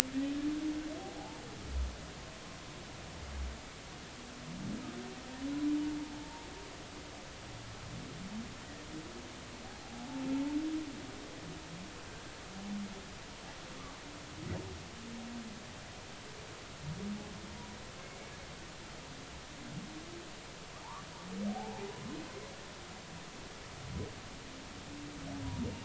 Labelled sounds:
6.0	6.5	humpback whale, 0.83 to 0.96 kHz
9.7	9.9	humpback whale, 0.80 to 0.86 kHz
21.5	21.9	humpback whale, 0.80 to 0.99 kHz

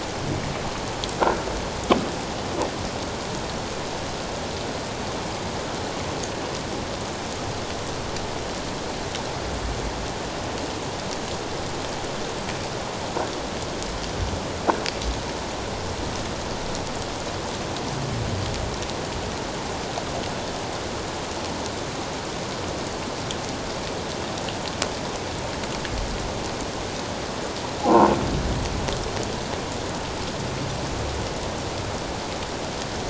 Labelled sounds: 27.8	28.1	croaking sound likely from a nearby submerged object, 0.78 to 1.1 kHz

